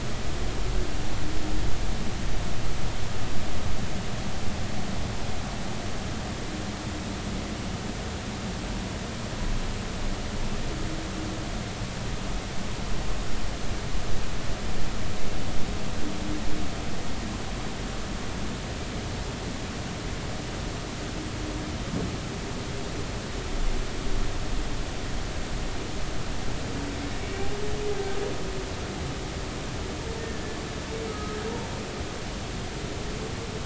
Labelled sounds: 31.1	31.4	humpback whale, 1.2 to 1.3 kHz

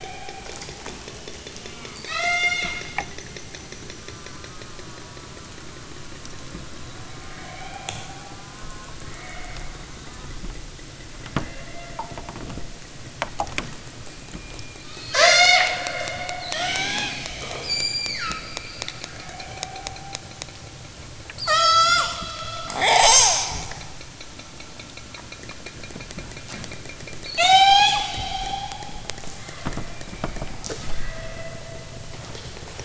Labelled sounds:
0.0	0.9	killer whale, southern Alaska resident, 0.64 to 2.9 kHz
1.6	3.0	killer whale, southern Alaska resident, 0.41 to 8.0 kHz
7.3	8.4	killer whale, southern Alaska resident, 0.41 to 5.2 kHz
9.0	9.8	killer whale, southern Alaska resident, 0.37 to 4.3 kHz
11.5	12.0	killer whale, southern Alaska resident, 0.41 to 3.9 kHz
14.1	15.8	killer whale, southern Alaska resident, 0.32 to 8.0 kHz
16.3	17.3	killer whale, southern Alaska resident, 0.18 to 8.0 kHz
17.7	18.7	killer whale, southern Alaska resident, 0.96 to 8.0 kHz
19.2	20.3	killer whale, southern Alaska resident, 0.41 to 2.7 kHz
21.4	22.2	killer whale, southern Alaska resident, 0.32 to 8.0 kHz
22.7	23.8	killer whale, southern Alaska resident, 0.23 to 8.0 kHz
27.2	28.1	killer whale, southern Alaska resident, 0.50 to 8.0 kHz
29.3	32.1	killer whale, southern Alaska resident, 0.28 to 2.9 kHz

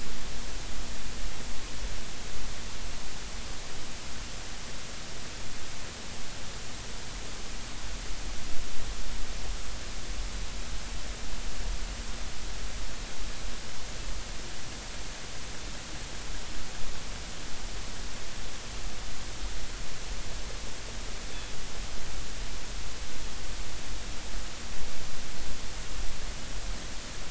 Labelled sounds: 21.3	21.6	killer whale, northern resident, G clan, 3.3 to 3.5 kHz

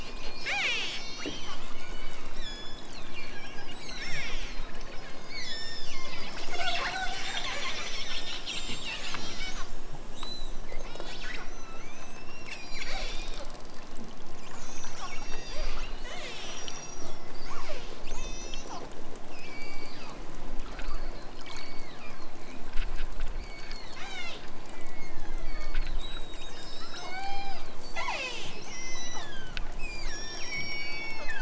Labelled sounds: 0.1	1.1	killer whale, southern Alaska resident, 0.14 to 8.0 kHz
1.7	3.2	killer whale, southern Alaska resident, 1.8 to 8.0 kHz
3.6	4.6	killer whale, southern Alaska resident, 1.0 to 8.0 kHz
5.0	6.3	killer whale, southern Alaska resident, 0.74 to 8.0 kHz
7.8	11.5	killer whale, southern Alaska resident, 0.83 to 8.0 kHz
12.5	13.5	killer whale, southern Alaska resident, 1.1 to 8.0 kHz
14.5	15.7	killer whale, southern Alaska resident, 1.7 to 8.0 kHz
16.0	18.8	killer whale, southern Alaska resident, 0.41 to 8.0 kHz
19.3	20.2	killer whale, southern Alaska resident, 1.1 to 5.7 kHz
21.5	22.3	killer whale, southern Alaska resident, 1.3 to 4.8 kHz
23.3	24.5	killer whale, southern Alaska resident, 0.28 to 8.0 kHz
25.4	31.3	killer whale, southern Alaska resident, 0.09 to 8.0 kHz

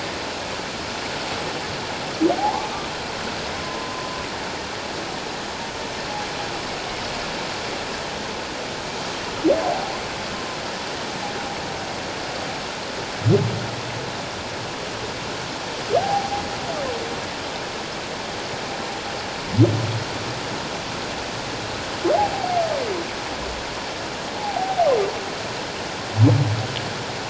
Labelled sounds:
2.3	4.1	humpback whale, 0.78 to 1.2 kHz
16.0	16.3	humpback whale, 0.78 to 0.88 kHz
24.3	24.9	humpback whale, 0.78 to 0.94 kHz

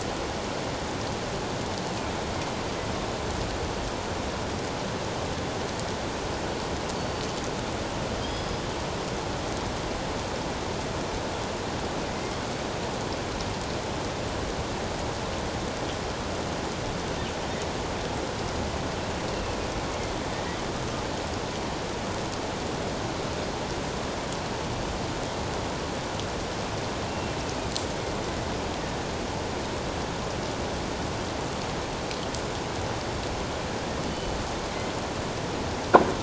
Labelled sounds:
7.0	7.2	killer whale, northern resident, G clan, 4.4 to 4.7 kHz
8.2	8.6	killer whale, northern resident, G clan, 3.1 to 5.2 kHz
19.3	19.6	killer whale, northern resident, A clan, AA subclan, A04 pod, 2.5 to 2.8 kHz
27.1	27.4	killer whale, northern resident, A clan, AA subclan, A04 pod, 2.7 to 2.8 kHz
34.1	34.4	killer whale, northern resident, G clan, 2.9 to 3.1 kHz

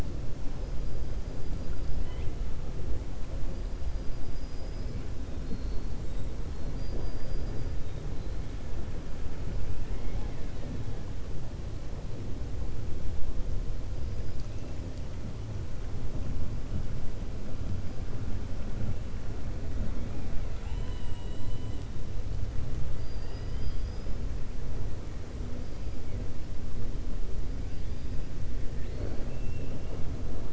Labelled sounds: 9.7	10.8	killer whale, 0.73 to 3.9 kHz
20.0	21.8	killer whale, 0.85 to 4.8 kHz

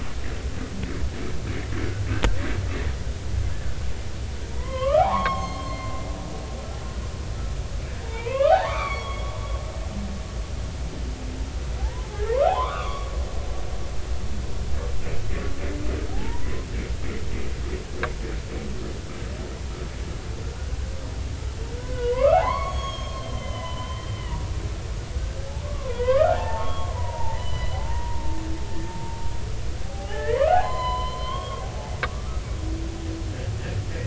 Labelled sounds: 1.5	1.7	humpback whale, 2.0 to 2.6 kHz
4.5	5.9	humpback whale, 0.80 to 6.5 kHz
8.0	9.3	humpback whale, 0.80 to 4.5 kHz
11.8	13.1	humpback whale, 0.80 to 3.6 kHz
16.1	16.7	humpback whale, 0.80 to 1.1 kHz
21.8	24.4	humpback whale, 0.80 to 6.7 kHz
25.7	28.4	humpback whale, 0.80 to 4.1 kHz
29.8	31.7	humpback whale, 0.80 to 4.2 kHz
32.1	32.4	humpback whale, 1.1 to 1.4 kHz

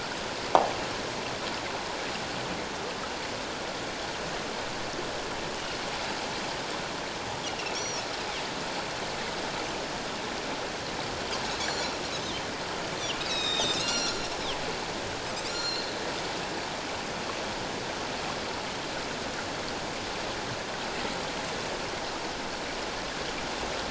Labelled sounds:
7.7	8.1	Pacific white-sided dolphin, 4.2 to 5.9 kHz
11.6	11.9	Pacific white-sided dolphin, 5.6 to 7.3 kHz
13.1	14.2	Pacific white-sided dolphin, 1.3 to 7.8 kHz
15.5	15.9	Pacific white-sided dolphin, 4.0 to 7.1 kHz

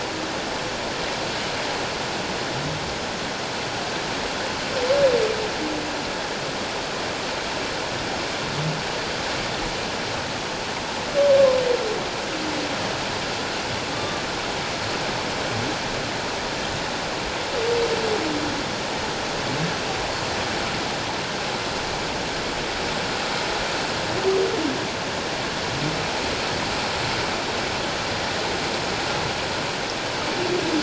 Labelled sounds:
13.9	14.2	humpback whale, 1.1 to 1.2 kHz

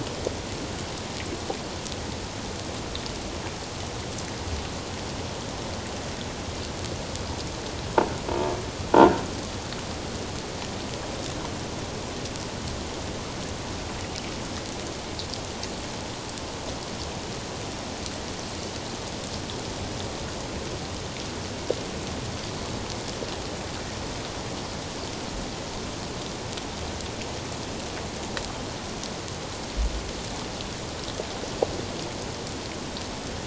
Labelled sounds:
8.9	9.2	croaking sound likely from a nearby submerged object, 1.4 to 1.5 kHz

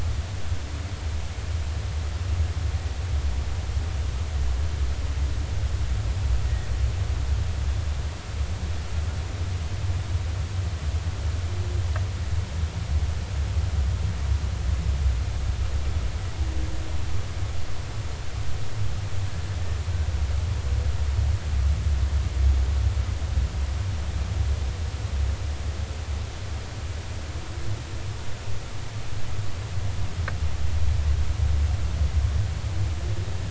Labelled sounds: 6.4	6.7	humpback whale, 1.8 to 1.9 kHz

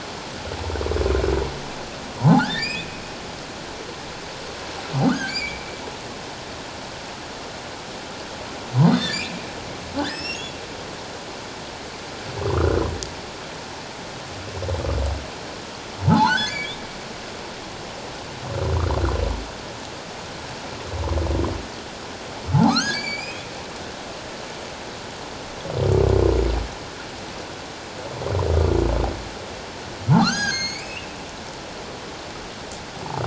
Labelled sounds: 2.2	3.0	humpback whale, 0.78 to 2.6 kHz
5.0	5.6	humpback whale, 1.4 to 6.7 kHz
8.8	10.5	humpback whale, 1.4 to 5.7 kHz
12.5	12.8	humpback whale, 0.91 to 1.5 kHz
16.1	16.8	humpback whale, 0.78 to 4.6 kHz
22.5	23.4	humpback whale, 0.78 to 8.0 kHz
30.2	31.1	humpback whale, 1.1 to 6.7 kHz

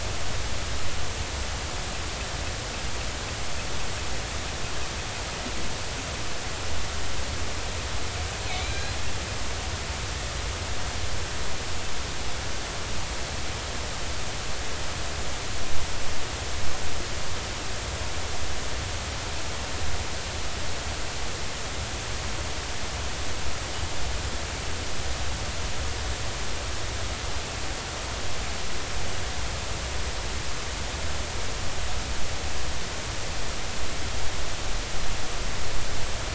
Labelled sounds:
8.5	9.0	killer whale, northern resident, G clan, call N40, 2.1 to 4.2 kHz

